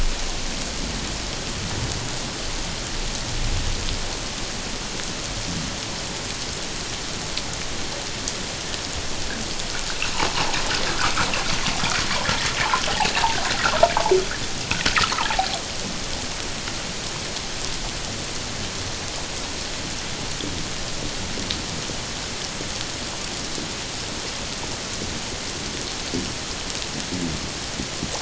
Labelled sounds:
15.1	15.5	humpback whale, 0.78 to 1.4 kHz

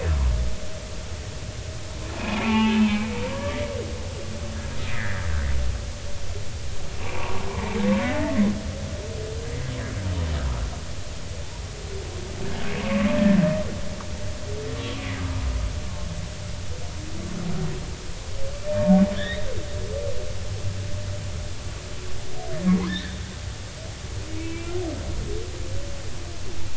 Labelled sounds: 2.2	3.6	humpback whale, 0.83 to 2.8 kHz
4.9	5.2	humpback whale, 1.5 to 2.1 kHz
7.0	8.5	humpback whale, 0.80 to 2.2 kHz
12.8	13.1	humpback whale, 1.0 to 1.2 kHz
15.2	15.4	humpback whale, 1.2 to 1.3 kHz
18.6	19.4	humpback whale, 1.6 to 4.0 kHz
22.7	23.2	humpback whale, 0.80 to 4.2 kHz
24.4	24.7	humpback whale, 2.5 to 2.9 kHz

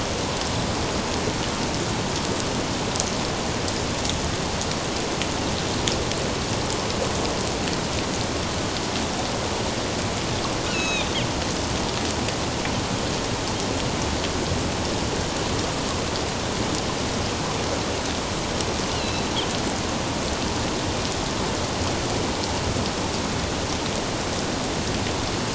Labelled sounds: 10.7	11.1	Pacific white-sided dolphin, 2.3 to 6.7 kHz
18.9	19.3	Pacific white-sided dolphin, 2.6 to 4.4 kHz

